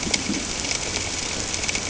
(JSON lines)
{"label": "ambient", "recorder": "HydroMoth"}